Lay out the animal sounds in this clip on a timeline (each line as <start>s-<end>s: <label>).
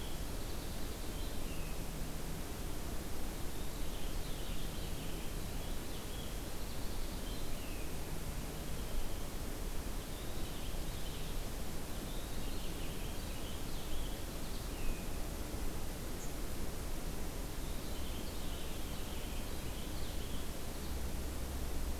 0.0s-1.8s: Purple Finch (Haemorhous purpureus)
3.3s-7.9s: Purple Finch (Haemorhous purpureus)
8.4s-9.5s: Purple Finch (Haemorhous purpureus)
9.8s-11.4s: Purple Finch (Haemorhous purpureus)
11.7s-15.1s: Purple Finch (Haemorhous purpureus)
16.0s-16.4s: unidentified call
17.4s-21.0s: Purple Finch (Haemorhous purpureus)